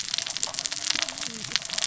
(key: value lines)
label: biophony, cascading saw
recorder: SoundTrap 600 or HydroMoth